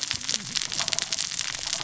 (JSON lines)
{"label": "biophony, cascading saw", "recorder": "SoundTrap 600 or HydroMoth"}